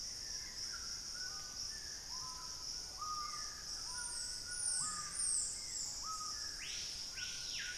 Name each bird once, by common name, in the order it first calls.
Screaming Piha, White-throated Toucan, Dusky-throated Antshrike